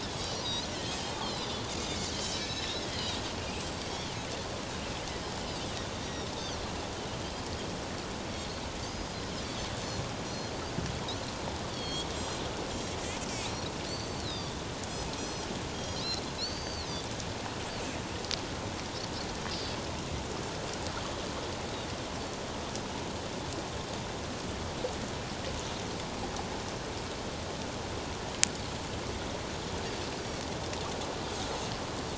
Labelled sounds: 0.0	3.2	Pacific white-sided dolphin, 2.4 to 6.2 kHz
3.8	4.1	Pacific white-sided dolphin, 2.2 to 3.4 kHz
6.0	6.3	Pacific white-sided dolphin, 5.3 to 5.8 kHz
8.3	9.3	Pacific white-sided dolphin, 4.2 to 5.1 kHz
9.8	10.5	Pacific white-sided dolphin, 4.1 to 6.0 kHz
11.7	12.4	Pacific white-sided dolphin, 3.1 to 7.6 kHz
12.7	13.0	Pacific white-sided dolphin, 7.1 to 7.3 kHz
13.9	14.6	Pacific white-sided dolphin, 3.4 to 6.2 kHz
15.2	16.0	Pacific white-sided dolphin, 3.2 to 6.7 kHz
16.4	16.9	Pacific white-sided dolphin, 3.9 to 6.3 kHz

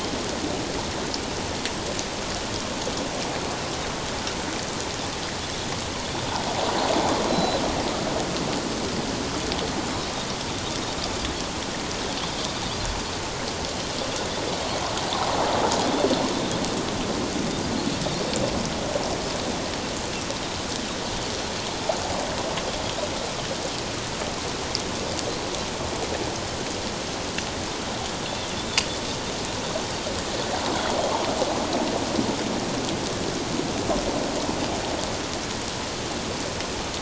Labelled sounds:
7.3	7.6	Pacific white-sided dolphin, 3.9 to 4.2 kHz

